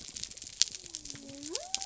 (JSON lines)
{"label": "biophony", "recorder": "SoundTrap 300"}